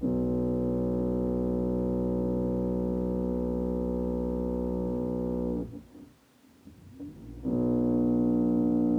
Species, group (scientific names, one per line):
Chorthippus mollis
Orthoptera